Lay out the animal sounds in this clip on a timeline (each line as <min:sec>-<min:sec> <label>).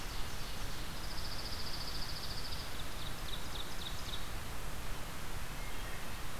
0:00.0-0:01.0 Ovenbird (Seiurus aurocapilla)
0:00.8-0:02.8 Dark-eyed Junco (Junco hyemalis)
0:02.4-0:04.3 Ovenbird (Seiurus aurocapilla)